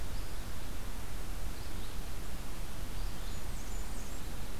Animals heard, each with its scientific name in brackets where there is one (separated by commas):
Red-eyed Vireo (Vireo olivaceus), Blackburnian Warbler (Setophaga fusca)